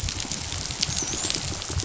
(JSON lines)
{"label": "biophony, dolphin", "recorder": "SoundTrap 500"}